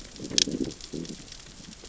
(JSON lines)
{"label": "biophony, growl", "recorder": "SoundTrap 600 or HydroMoth"}